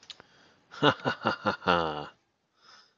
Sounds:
Laughter